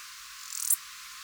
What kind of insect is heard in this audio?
orthopteran